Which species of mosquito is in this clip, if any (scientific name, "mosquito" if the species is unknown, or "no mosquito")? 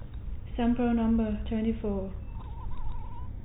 no mosquito